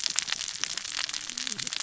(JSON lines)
{"label": "biophony, cascading saw", "recorder": "SoundTrap 600 or HydroMoth"}